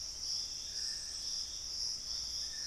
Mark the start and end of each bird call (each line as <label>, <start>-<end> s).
Dusky-throated Antshrike (Thamnomanes ardesiacus), 0.0-2.7 s
Piratic Flycatcher (Legatus leucophaius), 0.3-2.7 s